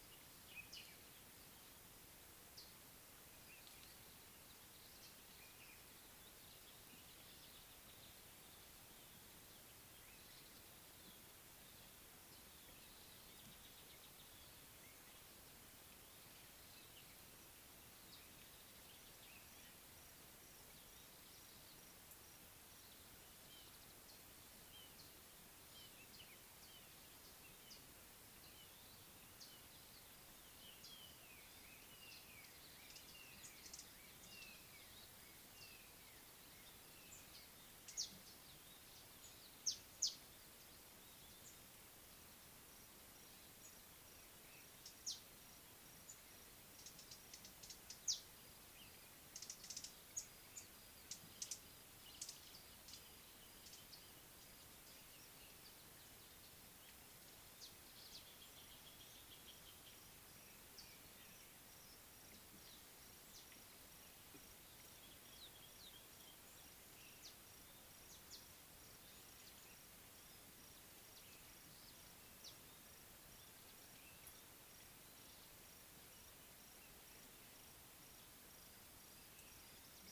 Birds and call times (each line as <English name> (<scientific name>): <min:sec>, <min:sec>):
Red-fronted Barbet (Tricholaema diademata): 0:24.8
Black-crowned Tchagra (Tchagra senegalus): 0:32.0
Variable Sunbird (Cinnyris venustus): 0:33.7, 0:40.1, 0:49.6
Northern Puffback (Dryoscopus gambensis): 0:59.1
Scarlet-chested Sunbird (Chalcomitra senegalensis): 1:05.8
Mariqua Sunbird (Cinnyris mariquensis): 1:12.5